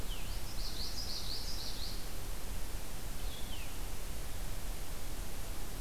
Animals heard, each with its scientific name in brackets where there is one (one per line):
Blue-headed Vireo (Vireo solitarius)
Common Yellowthroat (Geothlypis trichas)